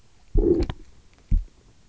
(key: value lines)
label: biophony, low growl
recorder: SoundTrap 300